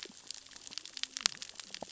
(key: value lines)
label: biophony, cascading saw
recorder: SoundTrap 600 or HydroMoth